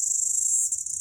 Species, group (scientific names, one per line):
Amphipsalta zelandica
Cicadidae